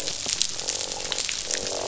{"label": "biophony, croak", "recorder": "SoundTrap 500"}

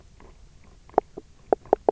{"label": "biophony, knock croak", "recorder": "SoundTrap 300"}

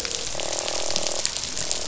{"label": "biophony, croak", "recorder": "SoundTrap 500"}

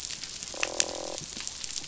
{"label": "biophony, croak", "recorder": "SoundTrap 500"}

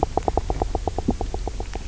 {"label": "biophony, knock croak", "recorder": "SoundTrap 300"}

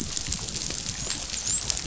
{"label": "biophony, dolphin", "recorder": "SoundTrap 500"}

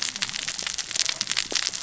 {"label": "biophony, cascading saw", "recorder": "SoundTrap 600 or HydroMoth"}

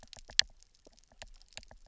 {"label": "biophony, knock", "recorder": "SoundTrap 300"}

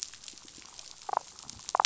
{"label": "biophony, damselfish", "recorder": "SoundTrap 500"}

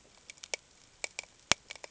{"label": "ambient", "recorder": "HydroMoth"}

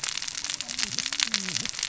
{"label": "biophony, cascading saw", "recorder": "SoundTrap 600 or HydroMoth"}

